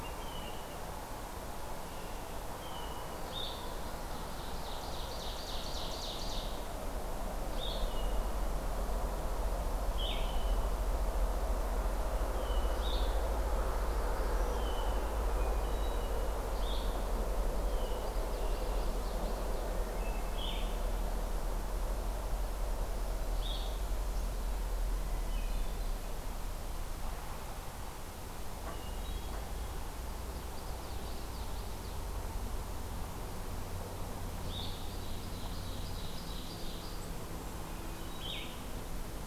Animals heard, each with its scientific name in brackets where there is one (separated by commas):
Blackburnian Warbler (Setophaga fusca), Blue-headed Vireo (Vireo solitarius), Hermit Thrush (Catharus guttatus), Common Yellowthroat (Geothlypis trichas), Ovenbird (Seiurus aurocapilla)